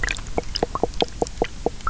{"label": "biophony, knock croak", "recorder": "SoundTrap 300"}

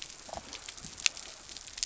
{"label": "biophony", "recorder": "SoundTrap 300"}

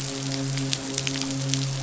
{"label": "biophony, midshipman", "recorder": "SoundTrap 500"}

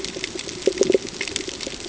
{"label": "ambient", "recorder": "HydroMoth"}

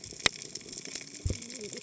{"label": "biophony, cascading saw", "recorder": "HydroMoth"}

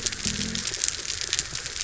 {"label": "biophony", "recorder": "SoundTrap 300"}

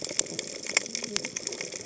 {"label": "biophony, cascading saw", "recorder": "HydroMoth"}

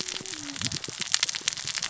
{"label": "biophony, cascading saw", "recorder": "SoundTrap 600 or HydroMoth"}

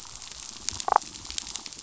{"label": "biophony, damselfish", "recorder": "SoundTrap 500"}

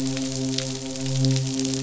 {"label": "biophony, midshipman", "recorder": "SoundTrap 500"}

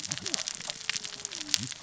{"label": "biophony, cascading saw", "recorder": "SoundTrap 600 or HydroMoth"}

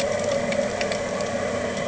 {"label": "anthrophony, boat engine", "recorder": "HydroMoth"}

